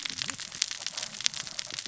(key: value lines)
label: biophony, cascading saw
recorder: SoundTrap 600 or HydroMoth